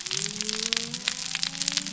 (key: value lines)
label: biophony
recorder: SoundTrap 300